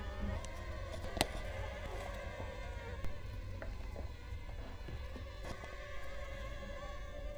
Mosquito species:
Culex quinquefasciatus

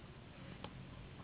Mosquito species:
Anopheles gambiae s.s.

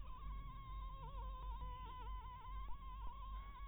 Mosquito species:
Anopheles harrisoni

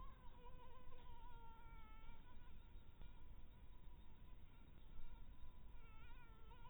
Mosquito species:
Anopheles harrisoni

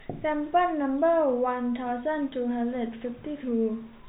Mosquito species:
no mosquito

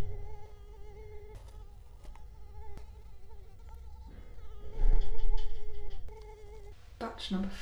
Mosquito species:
Culex quinquefasciatus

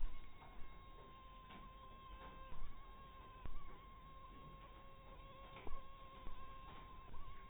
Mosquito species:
mosquito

